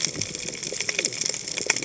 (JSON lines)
{"label": "biophony, cascading saw", "recorder": "HydroMoth"}